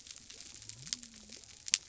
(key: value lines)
label: biophony
recorder: SoundTrap 300